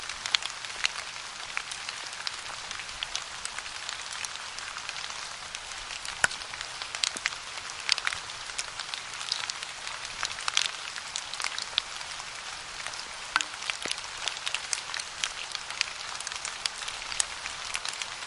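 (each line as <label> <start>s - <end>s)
Rain rustling as it falls, creating a humming sound. 0.0s - 18.3s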